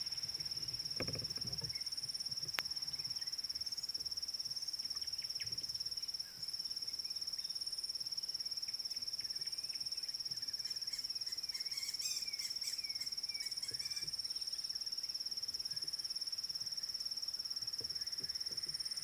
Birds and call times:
White-rumped Shrike (Eurocephalus ruppelli): 0:12.1

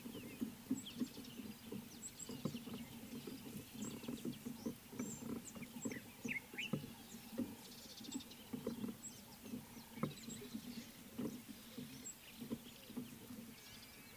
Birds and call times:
Speckled Mousebird (Colius striatus): 0:05.1
Common Bulbul (Pycnonotus barbatus): 0:06.3

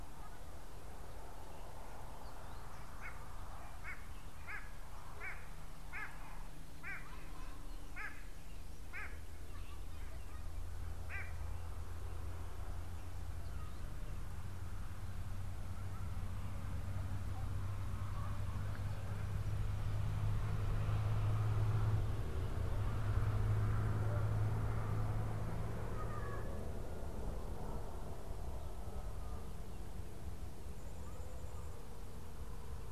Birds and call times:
White-bellied Go-away-bird (Corythaixoides leucogaster): 0:05.2

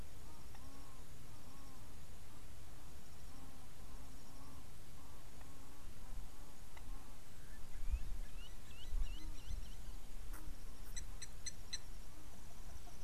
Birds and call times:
Blacksmith Lapwing (Vanellus armatus): 0:11.5

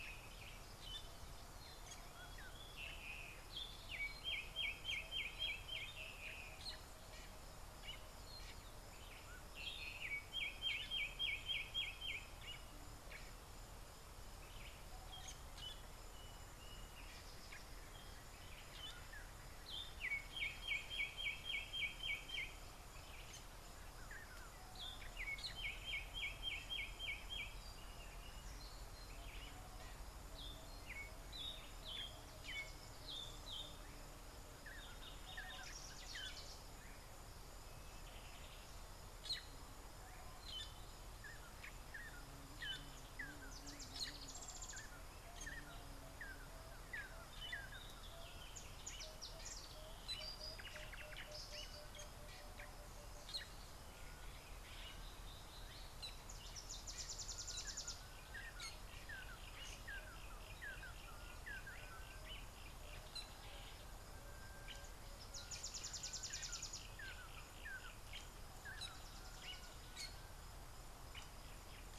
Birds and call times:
Variable Sunbird (Cinnyris venustus): 0:57.5, 1:06.2
Red-and-yellow Barbet (Trachyphonus erythrocephalus): 1:00.1, 1:07.8

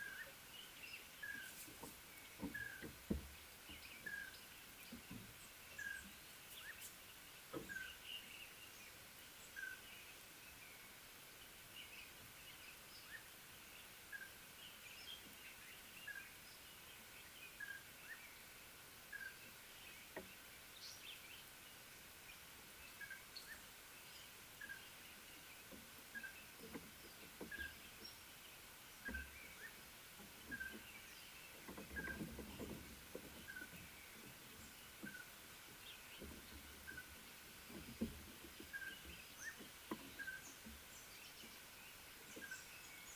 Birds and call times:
Red-fronted Tinkerbird (Pogoniulus pusillus): 0:02.7, 0:26.3, 0:40.3

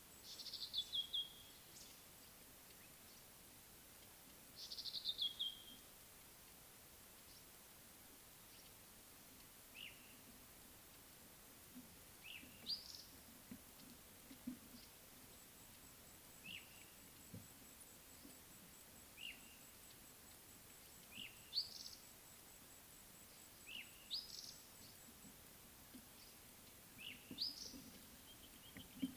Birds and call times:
Red-backed Scrub-Robin (Cercotrichas leucophrys): 0:00.6, 0:05.0, 0:12.7, 0:16.5, 0:21.6, 0:24.2, 0:27.4

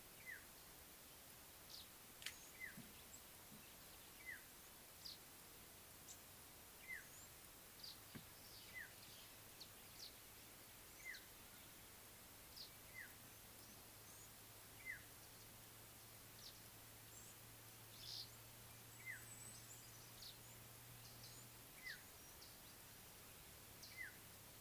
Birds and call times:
African Black-headed Oriole (Oriolus larvatus): 0:02.6, 0:11.1

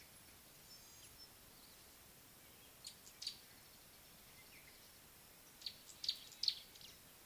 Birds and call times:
Gray-backed Camaroptera (Camaroptera brevicaudata): 0:06.0

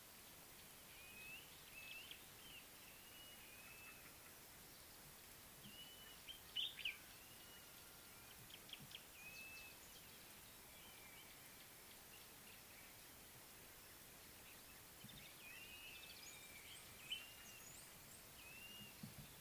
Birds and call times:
Blue-naped Mousebird (Urocolius macrourus): 0:05.9
Common Bulbul (Pycnonotus barbatus): 0:06.6

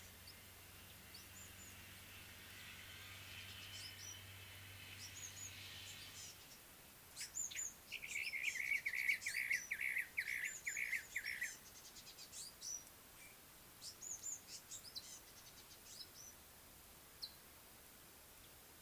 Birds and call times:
African Gray Flycatcher (Bradornis microrhynchus): 0:07.5, 0:14.2
Brown-crowned Tchagra (Tchagra australis): 0:09.4

